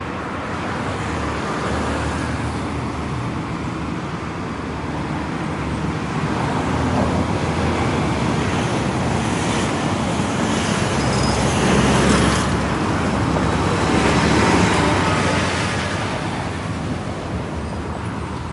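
Cars pass by constantly. 0.0 - 18.5
White noise. 0.0 - 18.5

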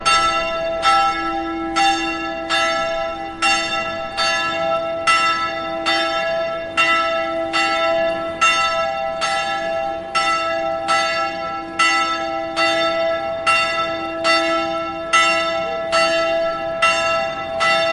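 A bell rings once. 0.0 - 17.9

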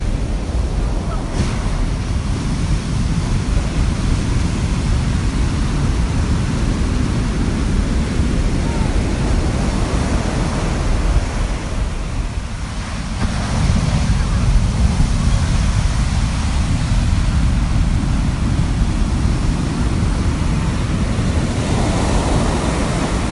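People are speaking in the distance. 0.1 - 23.2
Waves hitting each other. 0.1 - 23.2

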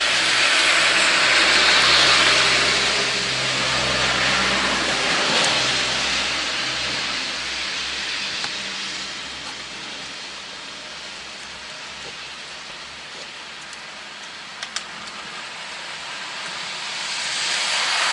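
Rain falls at night while cars pass by. 0.0 - 7.0
Rain falling at night with cars passing on a wet road and occasional handling noise in the background. 0.0 - 18.1
Light handling noise from a recording device being adjusted or moved. 8.4 - 8.6
Light handling noise from a recording device being adjusted or moved. 14.6 - 15.0

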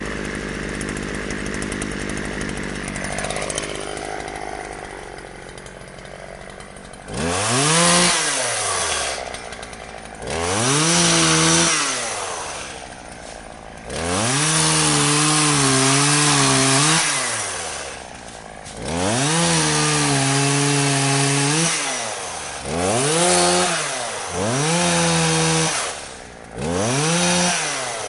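A chainsaw idling produces a steady mechanical rumble. 0.0 - 7.0
A chainsaw revs up and produces a loud, sharp sawing sound. 7.1 - 9.6
A chainsaw idling produces a steady mechanical rumble. 9.6 - 10.1
A chainsaw revs up and produces a loud, sharp sawing sound. 10.2 - 12.7
A chainsaw idling produces a steady mechanical rumble. 12.9 - 13.8
A chainsaw revs up and produces a loud, sharp sawing sound. 13.9 - 18.1
A chainsaw idling produces a steady mechanical rumble. 18.1 - 18.7
A chainsaw revs up and produces a loud, sharp sawing sound. 18.8 - 28.1

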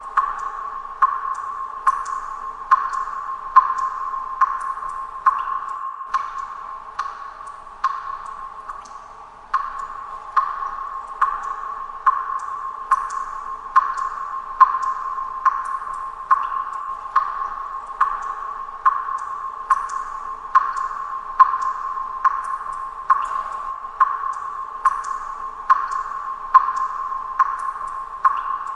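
Repeated reverberating water drops. 0.0 - 28.8

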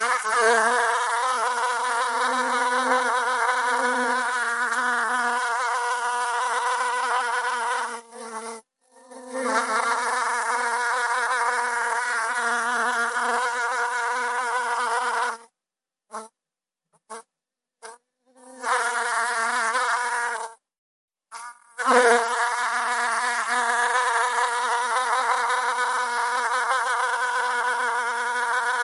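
A bee is buzzing loudly and continuously. 0.0 - 8.0
A bee buzzes briefly. 8.2 - 8.6
A bee is buzzing loudly and continuously. 9.1 - 15.5
A bee buzzes briefly. 16.1 - 16.4
A bee buzzes briefly. 17.0 - 18.0
A bee is buzzing loudly and continuously. 18.4 - 20.6
A bee buzzes quietly for a brief moment. 21.3 - 21.6
A bee is buzzing loudly and continuously. 21.7 - 28.8

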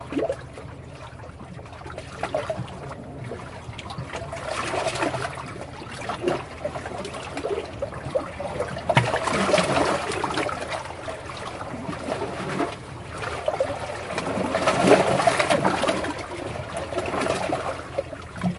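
Water bubbling repeats in the background. 0.0 - 0.5
Water flowing steadily in the distance. 0.0 - 18.6
Water bubbling repeats in the background. 1.6 - 3.3
Water bubbling repeats in the background. 8.3 - 10.0
Water bubbling repeats in the background. 13.1 - 16.0

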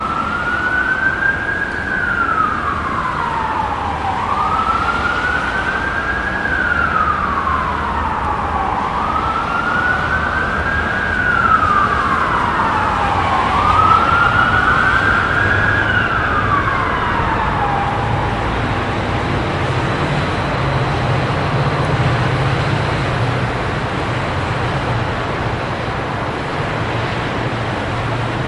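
A loud siren echoes nearby. 0.0 - 18.0
Background noise. 0.0 - 18.0
People are speaking in the distance indistinctly. 16.1 - 28.5
An engine is running nearby. 20.0 - 24.9

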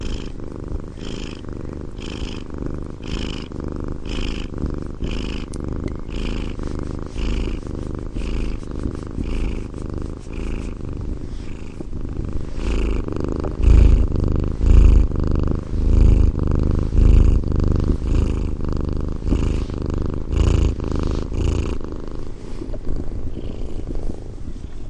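A cat softly meows and then purrs gently, adding warmth and intimacy to the quiet surroundings. 0.0 - 24.9

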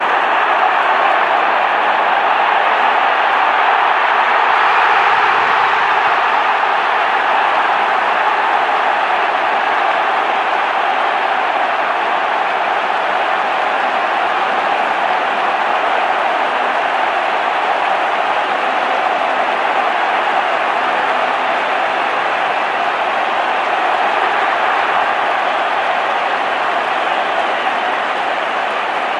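A large crowd cheers and shouts loudly in a stadium, with announcements barely audible over the noise. 0.0 - 29.2

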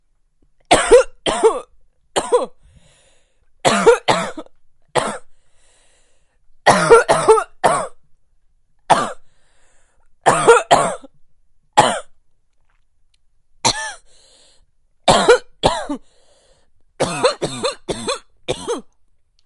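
Loud, repeated dry coughs. 0.6 - 2.6
Repeated loud deep human coughs. 3.6 - 5.4
Repeated deep human coughs. 6.5 - 8.0
A person coughs loudly once. 8.9 - 9.2
Repeated deep human coughs. 10.2 - 11.1
A person coughs loudly once. 11.7 - 12.1
A single wheezy cough. 13.5 - 14.0
Loud, repeated dry coughs. 15.0 - 16.1
Repeated deep human coughs. 16.9 - 18.9

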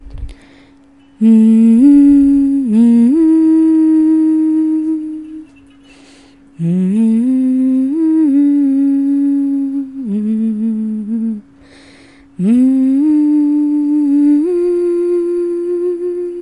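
A woman inhales loudly. 0.0 - 0.8
A woman is loudly and rhythmically humming indoors. 1.2 - 5.5
A woman inhales loudly. 5.8 - 6.4
A woman is loudly and rhythmically humming indoors. 6.6 - 11.5
A woman inhales loudly. 11.5 - 12.3
A woman is loudly and rhythmically humming indoors. 12.4 - 16.4

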